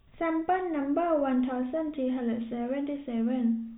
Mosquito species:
no mosquito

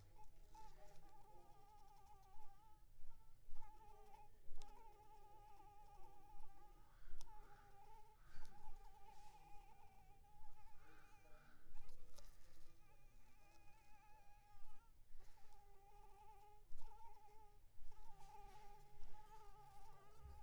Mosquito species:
Anopheles arabiensis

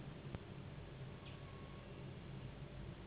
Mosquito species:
Anopheles gambiae s.s.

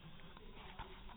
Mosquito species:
mosquito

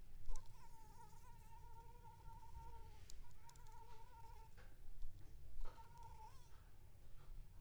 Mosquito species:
Anopheles funestus s.l.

